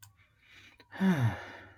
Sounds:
Sigh